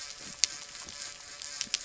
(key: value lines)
label: anthrophony, boat engine
recorder: SoundTrap 300